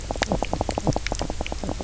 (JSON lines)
{"label": "biophony, knock croak", "recorder": "SoundTrap 300"}